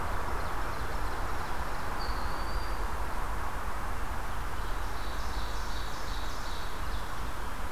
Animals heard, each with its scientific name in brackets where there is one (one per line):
Ovenbird (Seiurus aurocapilla)
Broad-winged Hawk (Buteo platypterus)